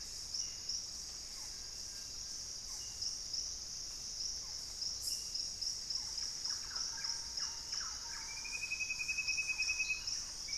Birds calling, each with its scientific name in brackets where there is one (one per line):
Gray Antbird (Cercomacra cinerascens)
Thrush-like Wren (Campylorhynchus turdinus)
Barred Forest-Falcon (Micrastur ruficollis)